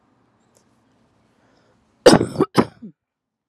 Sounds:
Cough